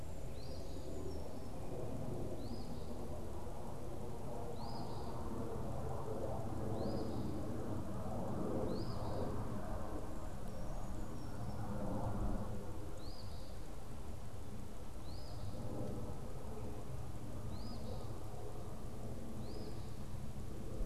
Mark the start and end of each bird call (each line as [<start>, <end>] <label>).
[0.00, 13.70] Eastern Phoebe (Sayornis phoebe)
[0.10, 1.70] Brown Creeper (Certhia americana)
[10.50, 11.70] Brown Creeper (Certhia americana)
[14.80, 20.85] Eastern Phoebe (Sayornis phoebe)